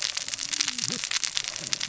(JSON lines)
{"label": "biophony, cascading saw", "recorder": "SoundTrap 600 or HydroMoth"}